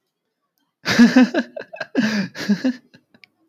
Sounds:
Laughter